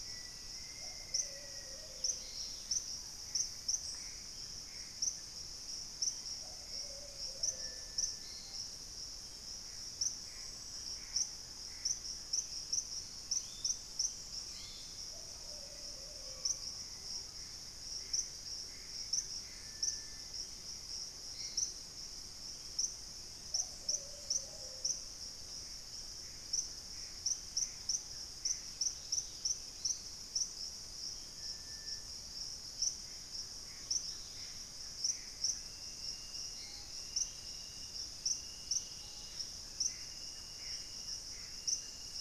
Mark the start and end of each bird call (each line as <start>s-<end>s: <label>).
0.0s-5.1s: Purple-throated Fruitcrow (Querula purpurata)
0.0s-8.2s: Plumbeous Pigeon (Patagioenas plumbea)
0.0s-8.8s: Hauxwell's Thrush (Turdus hauxwelli)
0.1s-2.0s: Black-faced Antthrush (Formicarius analis)
1.6s-2.9s: Dusky-capped Greenlet (Pachysylvia hypoxantha)
3.0s-5.4s: Gray Antbird (Cercomacra cinerascens)
9.5s-12.3s: Gray Antbird (Cercomacra cinerascens)
10.0s-17.2s: Screaming Piha (Lipaugus vociferans)
12.0s-14.2s: Black-capped Becard (Pachyramphus marginatus)
13.2s-15.3s: Yellow-margined Flycatcher (Tolmomyias assimilis)
14.9s-16.6s: Plumbeous Pigeon (Patagioenas plumbea)
16.3s-22.7s: Amazonian Motmot (Momotus momota)
16.8s-17.7s: unidentified bird
17.9s-19.8s: Gray Antbird (Cercomacra cinerascens)
23.2s-25.1s: Black-faced Antthrush (Formicarius analis)
23.3s-25.1s: Plumbeous Pigeon (Patagioenas plumbea)
26.1s-35.8s: Gray Antbird (Cercomacra cinerascens)
28.9s-29.8s: Dusky-capped Greenlet (Pachysylvia hypoxantha)
33.8s-39.7s: Dusky-capped Greenlet (Pachysylvia hypoxantha)
36.5s-39.5s: Screaming Piha (Lipaugus vociferans)
37.0s-38.6s: unidentified bird
39.0s-42.2s: Gray Antbird (Cercomacra cinerascens)